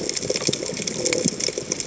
{"label": "biophony", "recorder": "HydroMoth"}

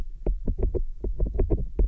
{"label": "biophony, knock croak", "recorder": "SoundTrap 300"}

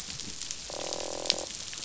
{"label": "biophony, croak", "recorder": "SoundTrap 500"}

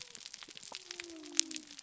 {"label": "biophony", "recorder": "SoundTrap 300"}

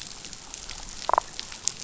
{"label": "biophony, damselfish", "recorder": "SoundTrap 500"}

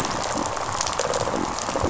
{"label": "biophony", "recorder": "SoundTrap 500"}
{"label": "biophony, rattle response", "recorder": "SoundTrap 500"}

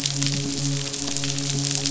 {"label": "biophony, midshipman", "recorder": "SoundTrap 500"}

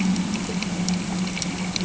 {"label": "anthrophony, boat engine", "recorder": "HydroMoth"}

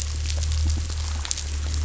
{"label": "anthrophony, boat engine", "recorder": "SoundTrap 500"}
{"label": "biophony", "recorder": "SoundTrap 500"}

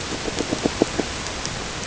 {"label": "ambient", "recorder": "HydroMoth"}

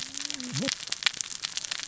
{"label": "biophony, cascading saw", "recorder": "SoundTrap 600 or HydroMoth"}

